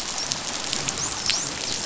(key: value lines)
label: biophony, dolphin
recorder: SoundTrap 500